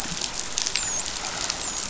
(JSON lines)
{"label": "biophony, dolphin", "recorder": "SoundTrap 500"}